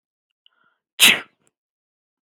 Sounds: Sneeze